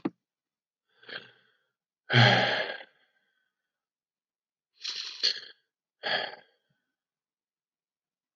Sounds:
Sigh